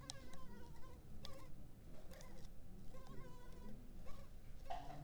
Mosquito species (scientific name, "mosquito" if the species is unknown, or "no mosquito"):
Culex pipiens complex